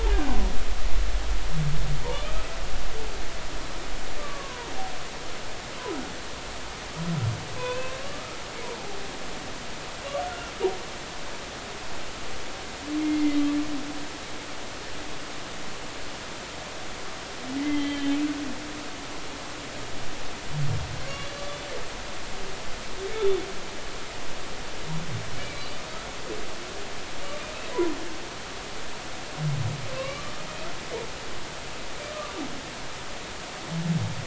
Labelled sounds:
4.2	4.7	humpback whale, 0.90 to 1.2 kHz
7.6	8.4	humpback whale, 0.93 to 2.7 kHz
13.0	13.5	humpback whale, 2.0 to 3.2 kHz
17.6	18.2	humpback whale, 2.0 to 3.3 kHz
21.0	21.3	humpback whale, 2.0 to 2.3 kHz
23.1	23.5	humpback whale, 3.4 to 3.6 kHz
25.3	25.7	humpback whale, 2.2 to 2.4 kHz
29.9	30.3	humpback whale, 1.0 to 3.0 kHz

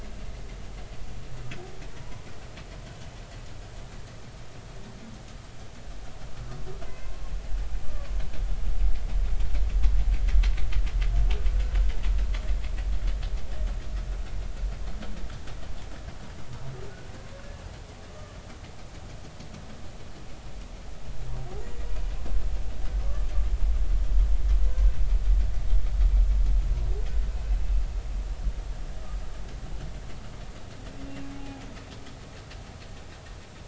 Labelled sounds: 6.8	7.1	humpback whale, 0.96 to 2.1 kHz
7.8	8.2	humpback whale, 0.99 to 1.2 kHz
18.1	18.4	humpback whale, 1.1 to 1.2 kHz
21.6	21.8	humpback whale, 7.0 to 7.2 kHz
31.3	31.6	humpback whale, 0.80 to 0.90 kHz

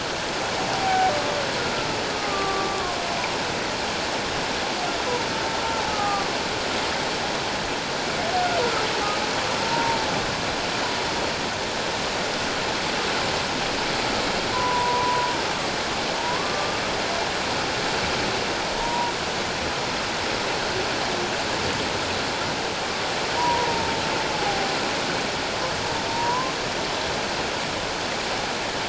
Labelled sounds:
0.7	1.1	humpback whale, 0.78 to 0.81 kHz
2.1	3.0	humpback whale, 1.0 to 1.3 kHz
5.9	6.3	humpback whale, 0.78 to 1.3 kHz
9.6	10.0	humpback whale, 0.88 to 1.0 kHz
14.5	15.3	humpback whale, 0.88 to 1.1 kHz
16.4	16.8	humpback whale, 1.1 to 1.2 kHz
18.8	19.1	humpback whale, 0.91 to 1.0 kHz
23.4	24.7	humpback whale, 0.78 to 1.1 kHz
26.1	26.5	humpback whale, 0.91 to 1.1 kHz

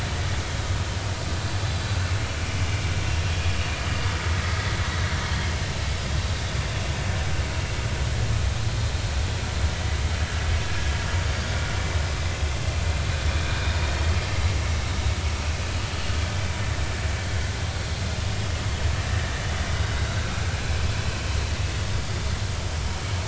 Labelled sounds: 19.9	20.2	vessel noise, 1.3 to 1.6 kHz

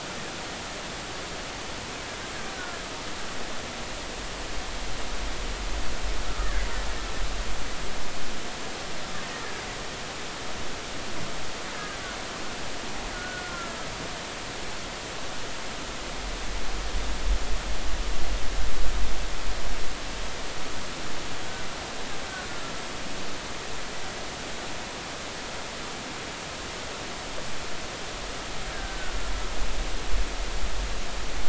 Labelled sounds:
6.3	6.7	killer whale, Bigg's (transient), 1.1 to 1.9 kHz
11.7	12.0	killer whale, Bigg's (transient), 1.5 to 1.7 kHz
13.1	13.7	killer whale, Bigg's (transient), 1.3 to 1.5 kHz
28.7	29.2	killer whale, Bigg's (transient), 1.4 to 1.7 kHz

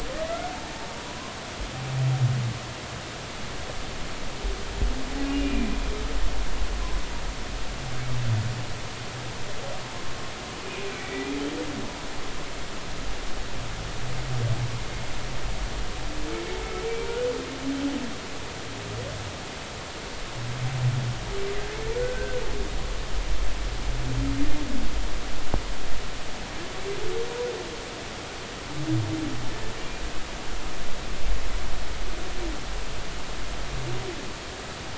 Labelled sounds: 5.2	5.7	humpback whale, 2.3 to 2.9 kHz
10.9	11.4	humpback whale, 1.9 to 2.4 kHz
23.0	23.4	humpback whale, 1.4 to 1.7 kHz

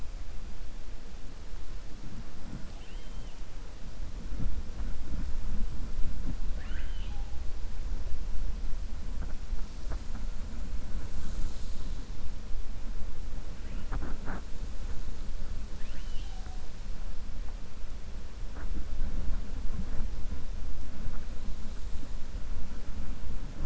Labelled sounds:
6.4	7.3	killer whale, 0.66 to 3.7 kHz

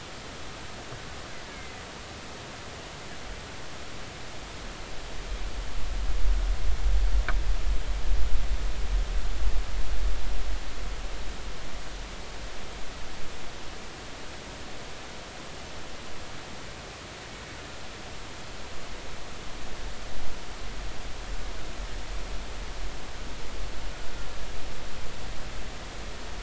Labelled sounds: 1.5	1.8	killer whale, Bigg's (transient), 2.0 to 2.3 kHz

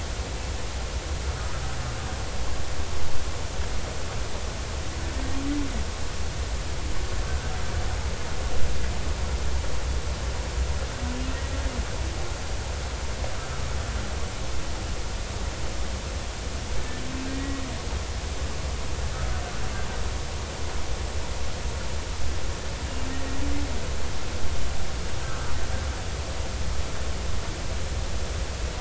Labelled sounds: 1.3	1.6	humpback whale, 1.2 to 1.4 kHz
17.3	17.6	humpback whale, 1.8 to 2.0 kHz
25.2	25.5	humpback whale, 1.2 to 1.4 kHz

